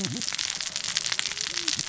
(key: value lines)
label: biophony, cascading saw
recorder: SoundTrap 600 or HydroMoth